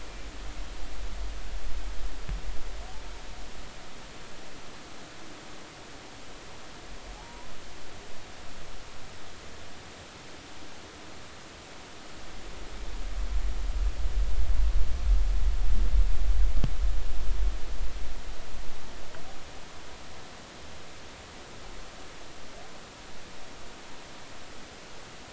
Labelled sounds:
7.2	7.5	humpback whale, 0.80 to 1.1 kHz

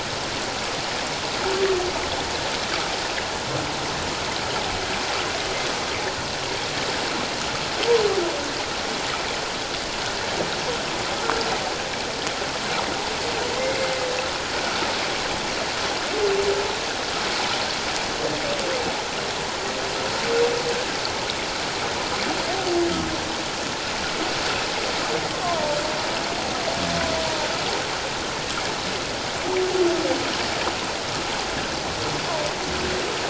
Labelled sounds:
13.6	13.9	humpback whale, 2.0 to 2.2 kHz
25.4	25.8	humpback whale, 0.84 to 1.2 kHz

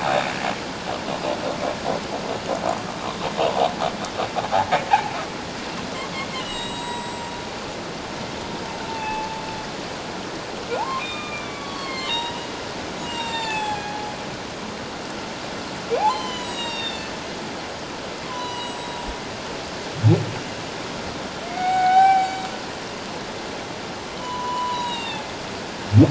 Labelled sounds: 0.0	0.3	humpback whale, 3.5 to 3.8 kHz
6.3	7.3	humpback whale, 0.91 to 7.9 kHz
8.9	9.3	humpback whale, 0.81 to 2.7 kHz
10.8	12.5	humpback whale, 0.78 to 5.8 kHz
13.0	14.1	humpback whale, 0.78 to 8.0 kHz
16.0	17.2	humpback whale, 0.78 to 8.0 kHz
18.3	18.9	humpback whale, 0.94 to 7.9 kHz
21.5	22.4	humpback whale, 0.78 to 7.8 kHz
24.1	25.2	humpback whale, 0.81 to 7.9 kHz

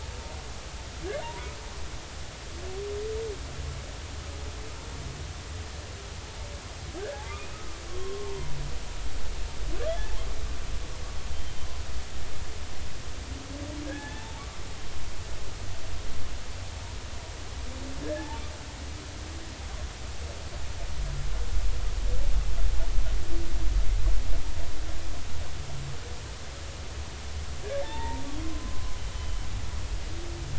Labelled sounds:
1.2	1.6	humpback whale, 0.83 to 1.1 kHz
7.0	8.5	humpback whale, 0.80 to 2.6 kHz
13.9	14.4	humpback whale, 0.80 to 3.6 kHz
18.0	18.4	humpback whale, 0.80 to 1.8 kHz
27.8	29.4	humpback whale, 0.83 to 3.1 kHz

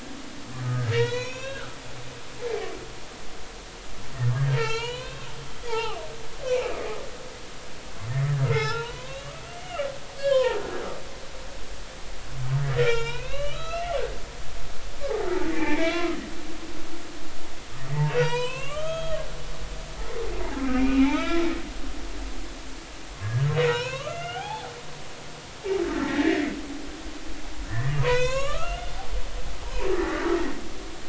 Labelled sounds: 0.6	1.8	humpback whale, 0.90 to 6.9 kHz
4.5	6.0	humpback whale, 0.80 to 4.4 kHz
6.5	6.8	humpback whale, 2.2 to 2.6 kHz
8.1	9.9	humpback whale, 0.80 to 5.4 kHz
10.2	10.6	humpback whale, 0.86 to 3.4 kHz
12.8	13.9	humpback whale, 0.86 to 4.1 kHz
15.5	16.2	humpback whale, 0.96 to 3.5 kHz
18.1	19.2	humpback whale, 0.90 to 6.6 kHz
20.8	21.5	humpback whale, 0.80 to 3.5 kHz
23.2	25.0	humpback whale, 0.80 to 5.6 kHz
26.0	26.6	humpback whale, 1.6 to 2.2 kHz
27.7	28.9	humpback whale, 0.93 to 7.4 kHz
29.6	30.2	humpback whale, 0.80 to 2.1 kHz

